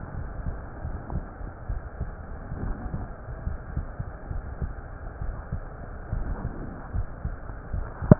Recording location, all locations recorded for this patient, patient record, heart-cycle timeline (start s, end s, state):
aortic valve (AV)
aortic valve (AV)+pulmonary valve (PV)+tricuspid valve (TV)+mitral valve (MV)
#Age: Child
#Sex: Female
#Height: 149.0 cm
#Weight: 35.6 kg
#Pregnancy status: False
#Murmur: Absent
#Murmur locations: nan
#Most audible location: nan
#Systolic murmur timing: nan
#Systolic murmur shape: nan
#Systolic murmur grading: nan
#Systolic murmur pitch: nan
#Systolic murmur quality: nan
#Diastolic murmur timing: nan
#Diastolic murmur shape: nan
#Diastolic murmur grading: nan
#Diastolic murmur pitch: nan
#Diastolic murmur quality: nan
#Outcome: Abnormal
#Campaign: 2015 screening campaign
0.00	1.65	unannotated
1.65	1.80	S1
1.80	1.97	systole
1.97	2.14	S2
2.14	2.60	diastole
2.60	2.76	S1
2.76	2.92	systole
2.92	3.06	S2
3.06	3.40	diastole
3.40	3.58	S1
3.58	3.74	systole
3.74	3.86	S2
3.86	4.30	diastole
4.30	4.46	S1
4.46	4.60	systole
4.60	4.72	S2
4.72	5.22	diastole
5.22	5.36	S1
5.36	5.50	systole
5.50	5.66	S2
5.66	6.12	diastole
6.12	6.28	S1
6.28	6.42	systole
6.42	6.54	S2
6.54	6.94	diastole
6.94	7.08	S1
7.08	7.22	systole
7.22	7.38	S2
7.38	7.72	diastole
7.72	7.88	S1
7.88	8.19	unannotated